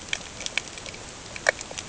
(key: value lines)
label: ambient
recorder: HydroMoth